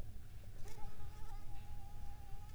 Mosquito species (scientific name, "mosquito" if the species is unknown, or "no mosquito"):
Anopheles arabiensis